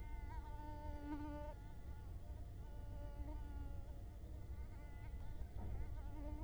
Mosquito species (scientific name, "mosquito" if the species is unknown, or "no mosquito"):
Culex quinquefasciatus